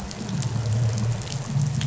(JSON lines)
{"label": "anthrophony, boat engine", "recorder": "SoundTrap 500"}